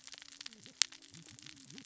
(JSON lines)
{"label": "biophony, cascading saw", "recorder": "SoundTrap 600 or HydroMoth"}